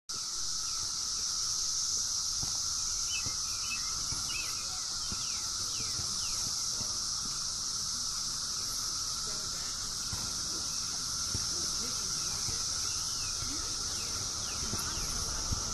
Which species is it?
Magicicada cassini